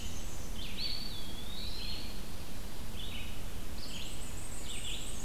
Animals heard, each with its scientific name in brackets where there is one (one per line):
Eastern Wood-Pewee (Contopus virens)
Red-eyed Vireo (Vireo olivaceus)
Black-and-white Warbler (Mniotilta varia)